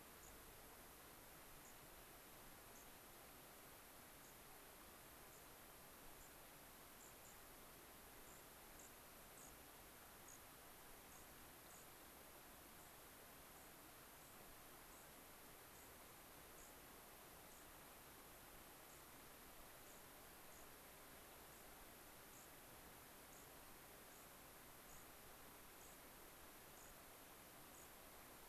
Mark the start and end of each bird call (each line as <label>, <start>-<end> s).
unidentified bird, 0.2-0.4 s
unidentified bird, 1.6-1.8 s
unidentified bird, 2.7-2.9 s
unidentified bird, 4.2-4.4 s
unidentified bird, 5.2-5.5 s
unidentified bird, 6.1-6.4 s
unidentified bird, 6.9-7.4 s
unidentified bird, 8.2-9.6 s
unidentified bird, 10.2-10.4 s
unidentified bird, 11.0-11.9 s
unidentified bird, 12.7-13.0 s
unidentified bird, 13.5-13.8 s
unidentified bird, 14.1-14.4 s
unidentified bird, 14.8-15.2 s
unidentified bird, 15.7-16.0 s
unidentified bird, 16.5-16.8 s
unidentified bird, 17.4-17.7 s
unidentified bird, 18.8-19.1 s
unidentified bird, 19.7-20.1 s
unidentified bird, 20.4-20.7 s
unidentified bird, 21.4-21.7 s
unidentified bird, 22.3-22.5 s
unidentified bird, 23.3-23.5 s
unidentified bird, 24.0-24.3 s
unidentified bird, 24.8-25.1 s
unidentified bird, 25.7-26.0 s
unidentified bird, 26.7-27.0 s
unidentified bird, 27.6-28.0 s